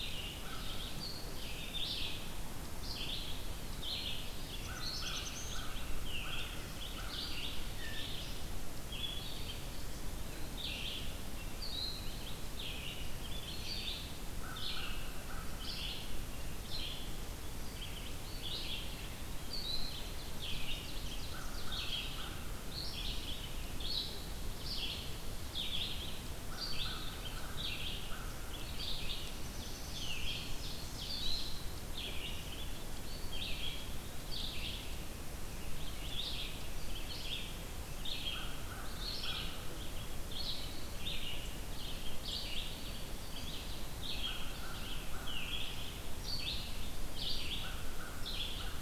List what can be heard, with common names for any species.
Red-eyed Vireo, American Crow, Black-throated Blue Warbler, Blue Jay, Eastern Wood-Pewee, Ovenbird